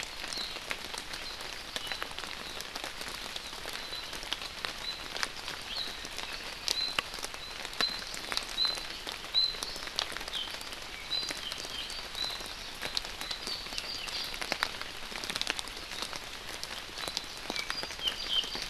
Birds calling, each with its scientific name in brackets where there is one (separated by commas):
Apapane (Himatione sanguinea)